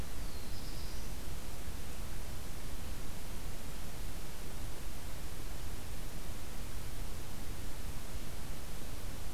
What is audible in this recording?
Black-throated Blue Warbler